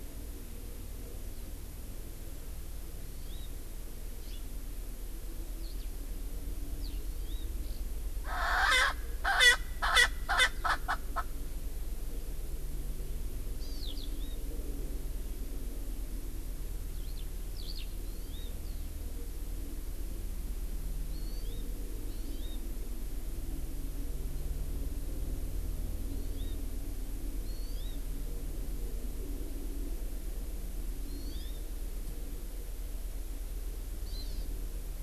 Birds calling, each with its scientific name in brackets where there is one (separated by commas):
Eurasian Skylark (Alauda arvensis), Erckel's Francolin (Pternistis erckelii), Hawaii Amakihi (Chlorodrepanis virens)